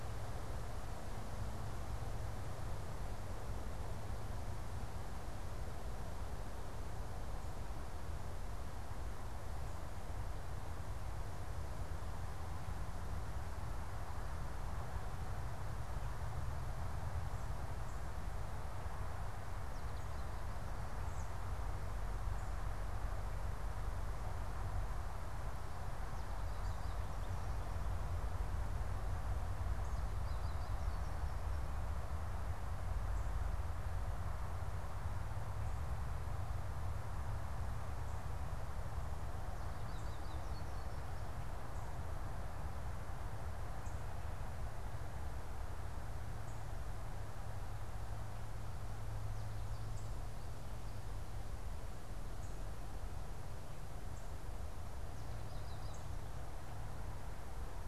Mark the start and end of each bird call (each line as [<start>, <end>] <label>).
[19.55, 57.87] American Goldfinch (Spinus tristis)
[20.75, 21.45] American Robin (Turdus migratorius)